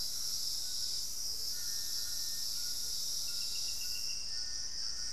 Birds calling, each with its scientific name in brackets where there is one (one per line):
Amazonian Motmot (Momotus momota)
Little Tinamou (Crypturellus soui)
White-throated Toucan (Ramphastos tucanus)